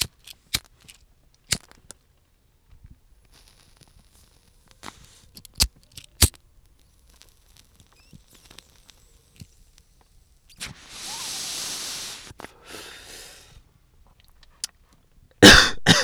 Did someone cough?
yes